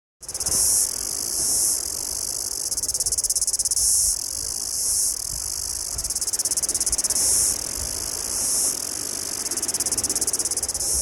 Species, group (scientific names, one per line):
Amphipsalta cingulata
Cicadidae